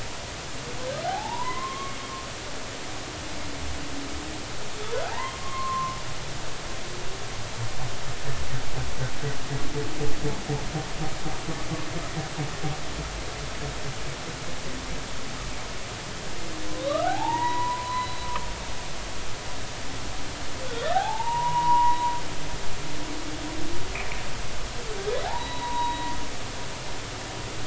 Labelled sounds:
1.0	2.0	humpback whale, 0.80 to 2.2 kHz
5.0	6.0	humpback whale, 0.80 to 1.2 kHz
16.8	18.3	humpback whale, 0.80 to 4.1 kHz
20.6	22.0	humpback whale, 0.80 to 2.9 kHz
25.2	26.1	humpback whale, 0.80 to 4.0 kHz

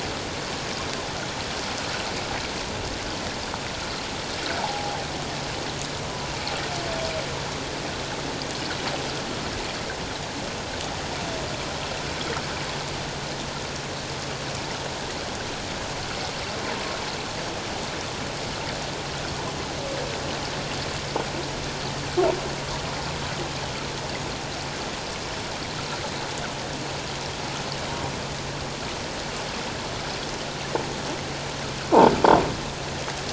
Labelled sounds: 4.6	5.0	humpback whale, 0.78 to 1.0 kHz

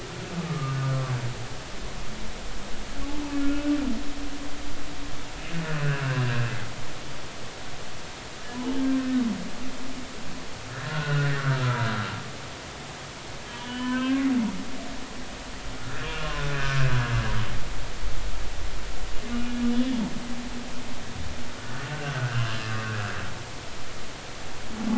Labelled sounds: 0.5	0.8	humpback whale, 1.1 to 1.2 kHz
3.5	3.7	humpback whale, 2.5 to 2.7 kHz
6.2	6.5	humpback whale, 1.5 to 1.7 kHz
8.8	9.1	humpback whale, 1.5 to 1.8 kHz
10.7	11.8	humpback whale, 1.2 to 1.9 kHz
13.5	14.3	humpback whale, 0.96 to 3.3 kHz
15.8	16.9	humpback whale, 1.3 to 2.9 kHz
22.1	22.6	humpback whale, 1.3 to 2.9 kHz

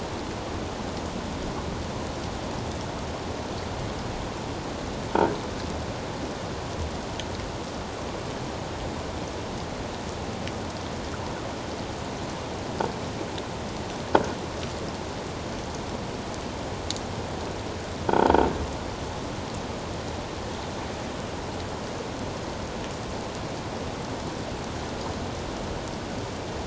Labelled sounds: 18.1	18.5	croaking sound likely from a nearby submerged object, 3.1 to 3.4 kHz

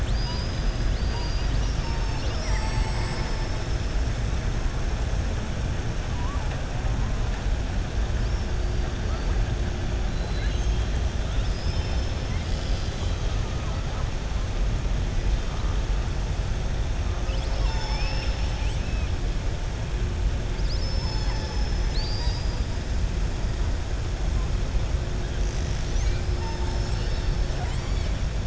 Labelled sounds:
10.1	10.9	killer whale, southern resident, 1.6 to 4.1 kHz
11.2	12.3	killer whale, southern resident, 2.5 to 5.4 kHz
17.2	19.1	killer whale, southern resident, 0.76 to 7.1 kHz
27.5	28.1	killer whale, southern resident, 0.71 to 5.0 kHz

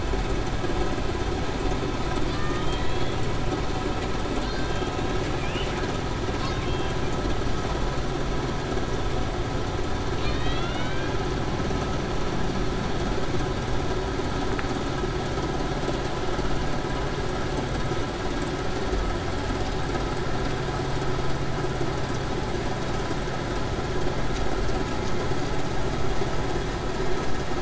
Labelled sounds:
2.3	2.7	killer whale, Bigg's (transient), 1.1 to 1.3 kHz
4.4	4.8	killer whale, Bigg's (transient), 1.5 to 1.6 kHz
10.3	11.1	killer whale, Bigg's (transient), 1.8 to 4.2 kHz

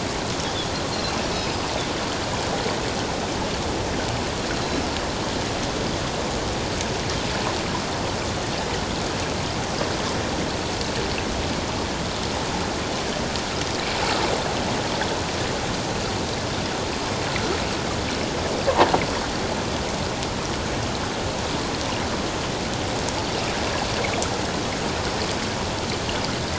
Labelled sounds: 1.3	1.6	Pacific white-sided dolphin, 4.9 to 5.3 kHz
4.5	4.8	Pacific white-sided dolphin, 3.9 to 4.2 kHz

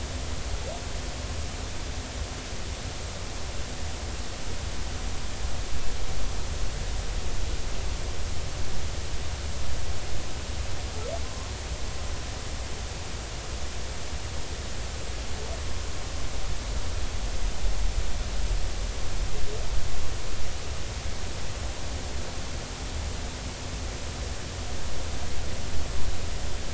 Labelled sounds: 11.2	11.5	humpback whale, 0.96 to 1.2 kHz

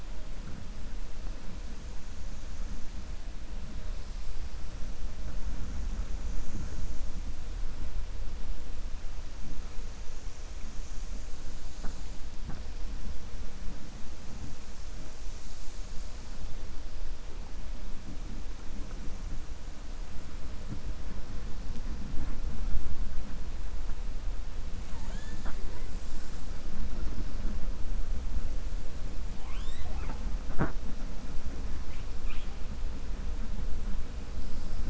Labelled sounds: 24.8	25.9	killer whale, 0.36 to 4.2 kHz

